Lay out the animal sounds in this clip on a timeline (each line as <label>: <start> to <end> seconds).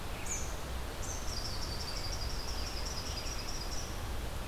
American Robin (Turdus migratorius): 0.0 to 0.5 seconds
Eastern Chipmunk (Tamias striatus): 0.1 to 4.0 seconds
American Robin (Turdus migratorius): 1.6 to 3.7 seconds